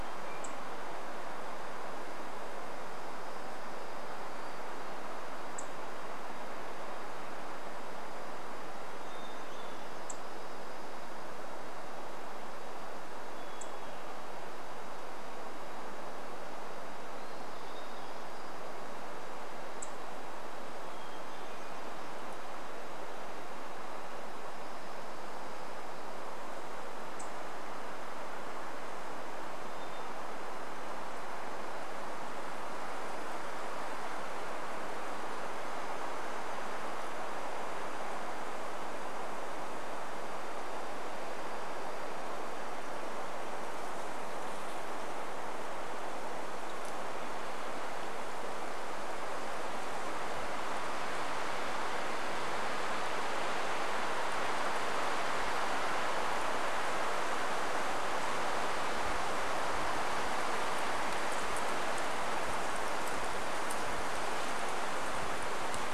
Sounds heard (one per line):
insect buzz
Hermit Thrush song
warbler song